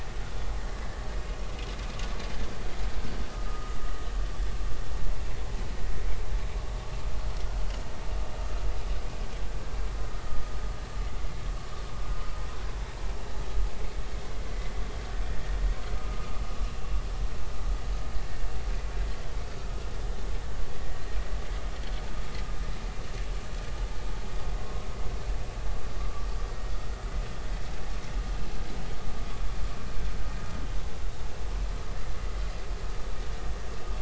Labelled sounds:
3.5	3.7	vessel noise, 1.2 to 1.3 kHz
15.9	16.4	vessel noise, 1.1 to 1.3 kHz
24.6	24.9	vessel noise, 0.96 to 1.1 kHz

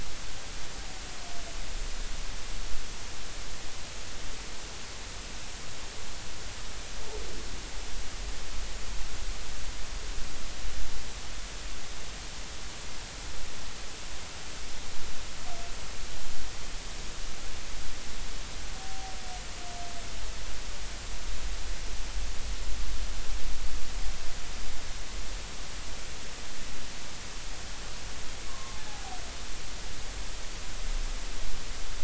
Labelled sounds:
28.5	28.8	humpback whale, 1.0 to 1.2 kHz

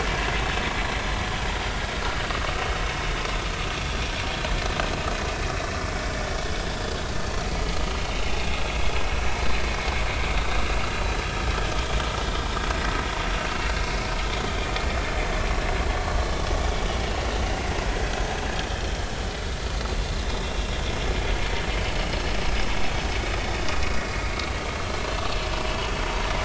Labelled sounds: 0.9	1.2	vessel noise, 4.1 to 4.2 kHz
6.5	6.7	vessel noise, 3.4 to 3.6 kHz
7.2	7.5	vessel noise, 4.3 to 4.6 kHz
10.4	10.6	vessel noise, 3.6 to 3.8 kHz

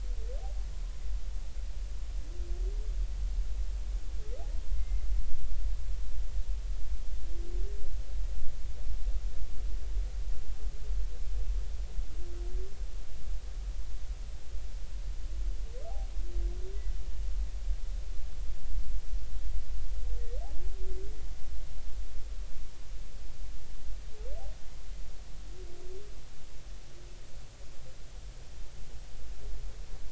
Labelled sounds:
4.7	5.0	humpback whale, 2.0 to 2.2 kHz

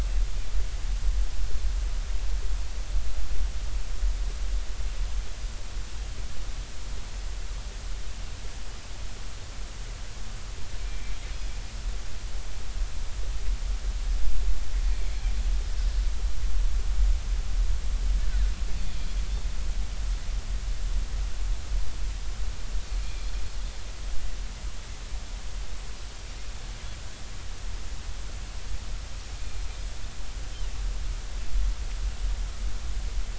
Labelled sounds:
10.9	11.2	Pacific white-sided dolphin, 2.2 to 2.4 kHz
14.9	15.2	Pacific white-sided dolphin, 2.2 to 2.5 kHz
23.0	23.3	Pacific white-sided dolphin, 2.3 to 2.5 kHz

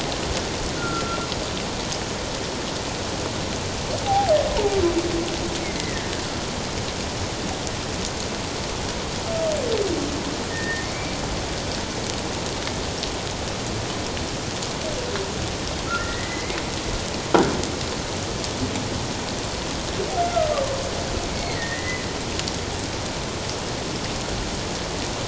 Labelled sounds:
0.8	1.2	humpback whale, 1.3 to 1.5 kHz
4.0	4.3	humpback whale, 0.78 to 0.94 kHz
5.6	6.1	humpback whale, 1.6 to 2.3 kHz
10.5	11.2	humpback whale, 1.8 to 2.4 kHz
15.9	16.6	humpback whale, 1.2 to 2.2 kHz
20.2	20.5	humpback whale, 1.2 to 1.4 kHz
21.3	22.0	humpback whale, 1.8 to 2.2 kHz

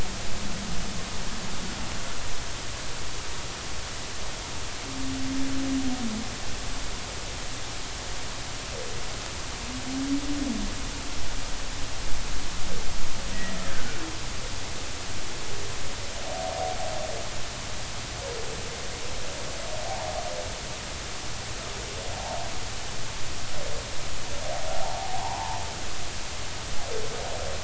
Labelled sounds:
24.7	25.6	humpback whale, 0.80 to 1.1 kHz

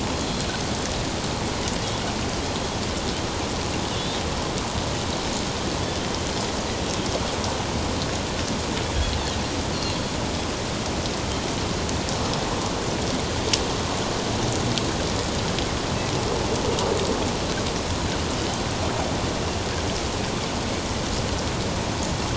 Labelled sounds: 3.9	4.2	Pacific white-sided dolphin, 3.3 to 3.8 kHz
9.7	10.0	Pacific white-sided dolphin, 4.0 to 4.5 kHz

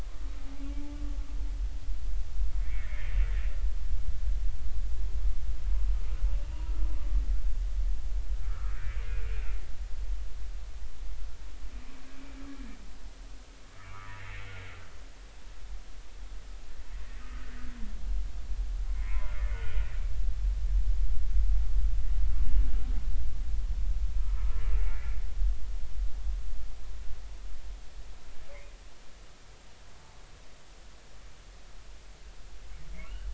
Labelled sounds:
0.7	1.0	humpback whale, 0.83 to 0.90 kHz
2.6	3.1	humpback whale, 1.7 to 2.3 kHz
8.4	8.7	humpback whale, 1.1 to 1.4 kHz
13.8	14.1	humpback whale, 0.93 to 2.5 kHz
17.2	17.5	humpback whale, 1.2 to 1.3 kHz
19.0	19.8	humpback whale, 0.90 to 3.1 kHz
24.2	24.4	humpback whale, 0.99 to 1.4 kHz
28.5	28.7	humpback whale, 1.8 to 2.5 kHz

